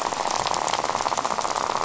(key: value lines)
label: biophony, rattle
recorder: SoundTrap 500